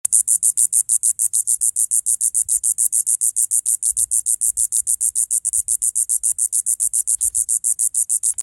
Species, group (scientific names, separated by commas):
Diceroprocta texana, Cicadidae